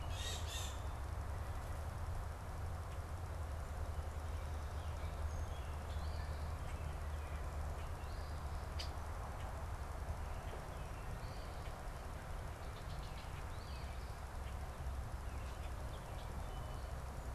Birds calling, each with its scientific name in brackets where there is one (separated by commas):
Song Sparrow (Melospiza melodia), Blue Jay (Cyanocitta cristata), Eastern Phoebe (Sayornis phoebe), Red-winged Blackbird (Agelaius phoeniceus)